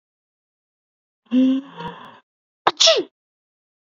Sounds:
Sneeze